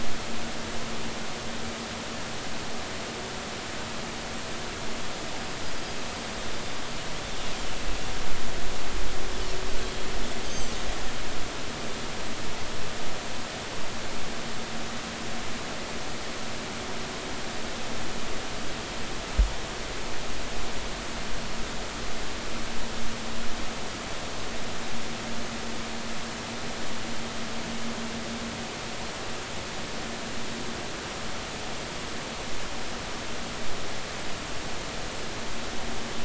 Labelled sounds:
10.4	10.7	Pacific white-sided dolphin, 4.5 to 6.4 kHz

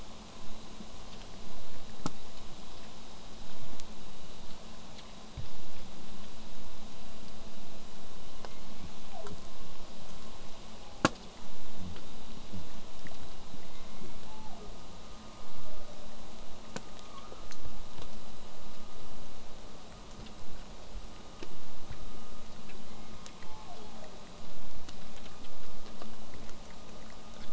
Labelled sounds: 8.4	9.4	killer whale, southern resident, J pod, call S01, 0.12 to 2.7 kHz
10.1	11.3	killer whale, southern resident, J pod, call S01, 0.23 to 2.4 kHz
13.6	14.8	killer whale, southern resident, J pod, call S01, 0.19 to 2.8 kHz
15.6	16.2	killer whale, southern resident, J pod, 0.35 to 0.89 kHz
22.9	24.2	killer whale, southern resident, J pod, call S01, 0.04 to 2.4 kHz

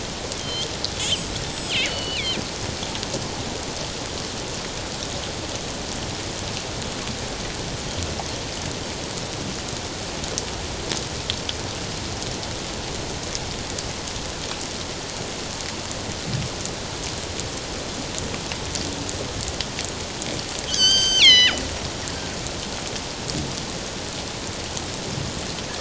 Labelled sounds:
0.4	2.4	killer whale, northern resident, G clan, 2.0 to 8.0 kHz
20.7	21.6	killer whale, northern resident, G clan, 1.3 to 7.9 kHz

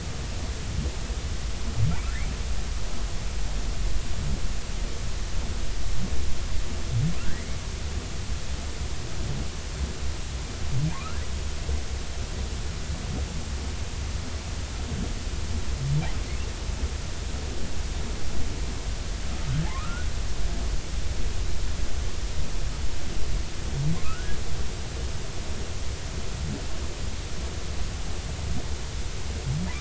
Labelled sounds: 10.9	11.2	humpback whale, 0.86 to 1.4 kHz
19.7	20.1	humpback whale, 0.80 to 1.6 kHz
23.9	24.3	humpback whale, 0.99 to 1.5 kHz

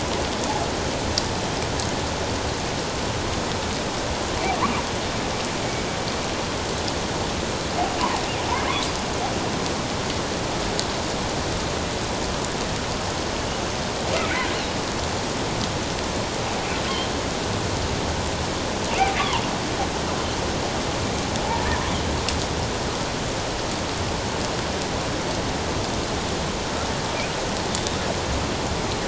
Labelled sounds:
27.7	28.0	killer whale, offshore, 3.4 to 3.8 kHz

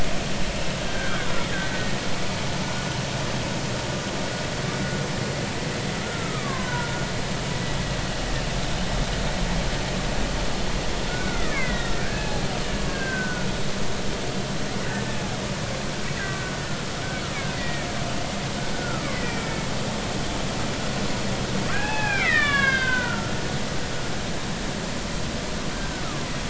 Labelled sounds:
0.5	1.5	killer whale, Bigg's (transient), 1.2 to 2.8 kHz
6.0	7.1	killer whale, Bigg's (transient), 0.93 to 1.7 kHz
11.1	12.3	killer whale, Bigg's (transient), 1.2 to 2.3 kHz
12.9	13.5	killer whale, Bigg's (transient), 1.4 to 1.7 kHz
16.2	16.5	killer whale, Bigg's (transient), 1.4 to 1.7 kHz
17.5	17.9	killer whale, Bigg's (transient), 1.8 to 2.5 kHz
18.7	19.5	killer whale, Bigg's (transient), 1.1 to 2.5 kHz
21.7	23.3	killer whale, Bigg's (transient), 0.80 to 4.9 kHz
25.7	26.0	killer whale, Bigg's (transient), 1.5 to 1.6 kHz

